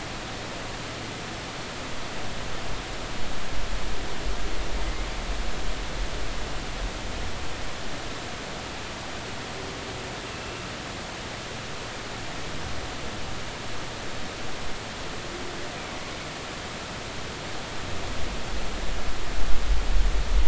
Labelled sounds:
10.3	10.6	humpback whale, 2.6 to 2.8 kHz

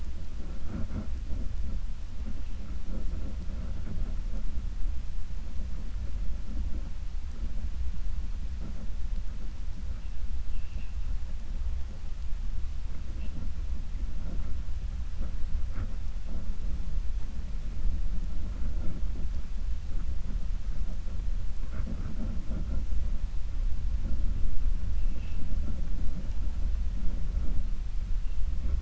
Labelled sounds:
10.4	10.9	vessel noise, 1.8 to 3.5 kHz

